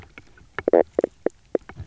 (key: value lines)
label: biophony, knock croak
recorder: SoundTrap 300